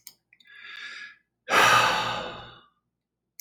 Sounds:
Sigh